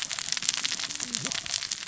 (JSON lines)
{"label": "biophony, cascading saw", "recorder": "SoundTrap 600 or HydroMoth"}